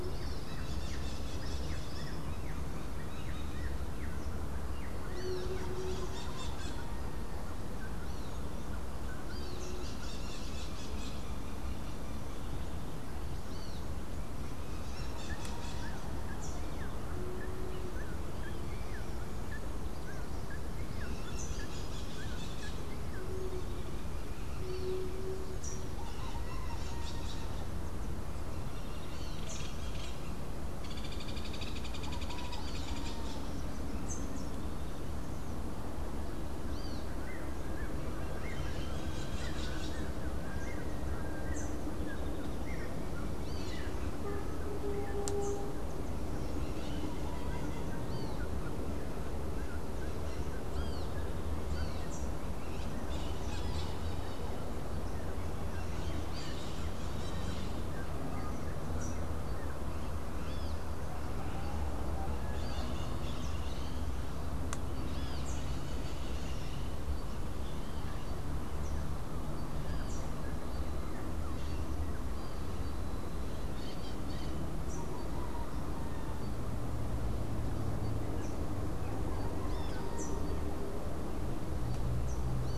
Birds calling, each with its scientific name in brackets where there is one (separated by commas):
Rufous-naped Wren (Campylorhynchus rufinucha), Hoffmann's Woodpecker (Melanerpes hoffmannii), Crimson-fronted Parakeet (Psittacara finschi), Great Kiskadee (Pitangus sulphuratus)